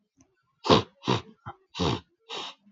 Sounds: Sniff